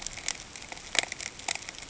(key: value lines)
label: ambient
recorder: HydroMoth